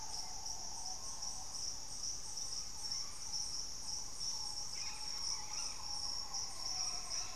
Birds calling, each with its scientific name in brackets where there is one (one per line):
unidentified bird
Green Ibis (Mesembrinibis cayennensis)